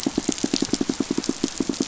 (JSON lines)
{"label": "biophony, pulse", "recorder": "SoundTrap 500"}